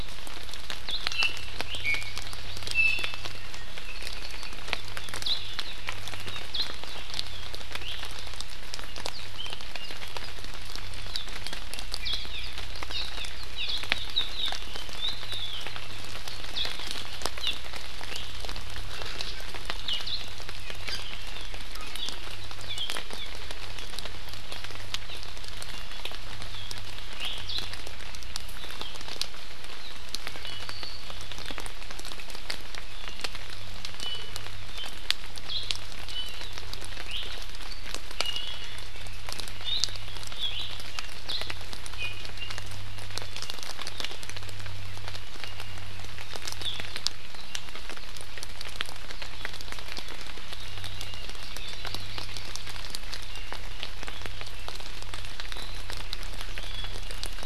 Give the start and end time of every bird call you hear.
[1.07, 2.17] Iiwi (Drepanis coccinea)
[2.67, 3.47] Iiwi (Drepanis coccinea)
[3.87, 4.57] Apapane (Himatione sanguinea)
[7.77, 7.97] Iiwi (Drepanis coccinea)
[9.37, 9.97] Apapane (Himatione sanguinea)
[12.27, 12.47] Hawaii Amakihi (Chlorodrepanis virens)
[12.87, 13.27] Hawaii Amakihi (Chlorodrepanis virens)
[13.57, 13.67] Hawaii Amakihi (Chlorodrepanis virens)
[17.37, 17.57] Hawaii Amakihi (Chlorodrepanis virens)
[27.17, 27.37] Iiwi (Drepanis coccinea)
[30.47, 30.77] Iiwi (Drepanis coccinea)
[32.87, 33.27] Iiwi (Drepanis coccinea)
[33.97, 34.47] Iiwi (Drepanis coccinea)
[36.07, 36.37] Iiwi (Drepanis coccinea)
[37.07, 37.27] Iiwi (Drepanis coccinea)
[38.17, 38.87] Iiwi (Drepanis coccinea)
[40.47, 40.67] Iiwi (Drepanis coccinea)
[41.97, 42.27] Iiwi (Drepanis coccinea)

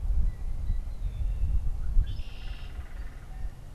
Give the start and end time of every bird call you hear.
[0.00, 3.75] Blue Jay (Cyanocitta cristata)
[0.80, 3.00] Red-winged Blackbird (Agelaius phoeniceus)
[2.10, 3.70] unidentified bird

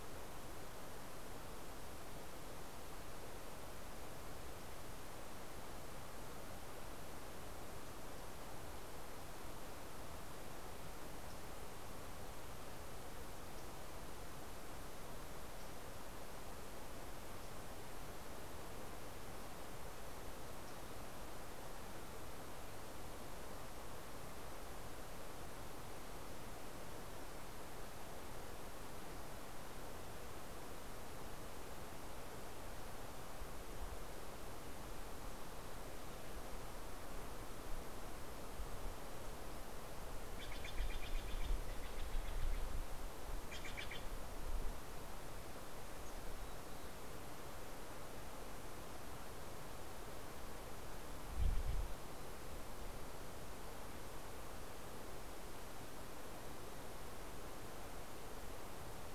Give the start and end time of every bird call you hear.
[39.73, 44.63] Steller's Jay (Cyanocitta stelleri)
[45.83, 47.13] Mountain Chickadee (Poecile gambeli)

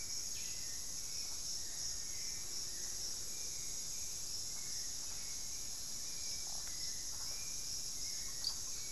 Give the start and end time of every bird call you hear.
[0.00, 8.91] Hauxwell's Thrush (Turdus hauxwelli)
[0.50, 2.60] Black-faced Antthrush (Formicarius analis)

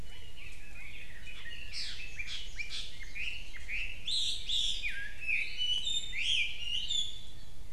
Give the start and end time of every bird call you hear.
[0.00, 1.90] Red-billed Leiothrix (Leiothrix lutea)
[1.60, 7.70] Chinese Hwamei (Garrulax canorus)

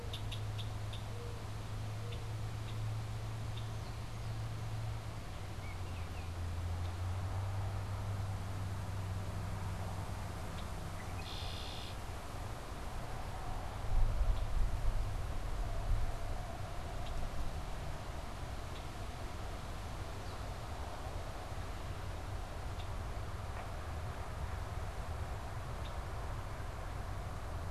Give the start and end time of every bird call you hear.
[0.00, 3.80] Red-winged Blackbird (Agelaius phoeniceus)
[5.40, 6.40] Baltimore Oriole (Icterus galbula)
[10.30, 12.10] Red-winged Blackbird (Agelaius phoeniceus)
[14.30, 18.90] Red-winged Blackbird (Agelaius phoeniceus)
[22.60, 27.71] Red-winged Blackbird (Agelaius phoeniceus)

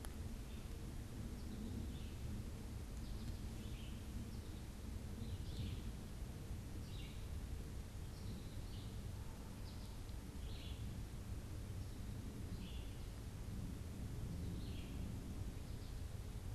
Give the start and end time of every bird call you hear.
[0.00, 15.39] unidentified bird

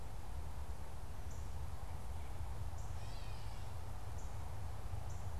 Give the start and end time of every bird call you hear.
[0.00, 5.39] Gray Catbird (Dumetella carolinensis)
[0.00, 5.39] Northern Cardinal (Cardinalis cardinalis)

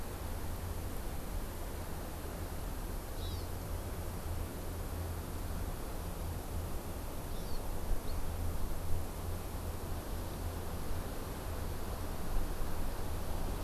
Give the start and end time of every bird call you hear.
[3.10, 3.50] Hawaii Amakihi (Chlorodrepanis virens)
[7.30, 7.60] Hawaii Amakihi (Chlorodrepanis virens)

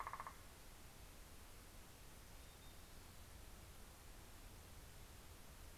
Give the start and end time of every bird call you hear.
[0.00, 1.34] Northern Flicker (Colaptes auratus)

